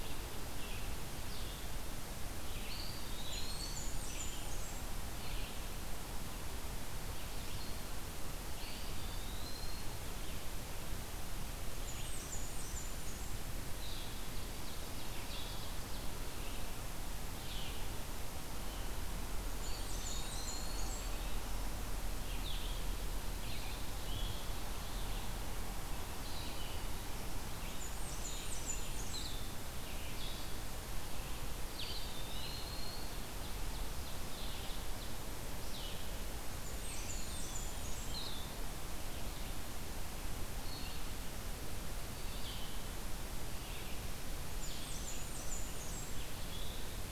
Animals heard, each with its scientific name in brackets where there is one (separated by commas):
Eastern Wood-Pewee (Contopus virens), Blackburnian Warbler (Setophaga fusca), Blue-headed Vireo (Vireo solitarius), Red-eyed Vireo (Vireo olivaceus), Black-throated Green Warbler (Setophaga virens), Ovenbird (Seiurus aurocapilla)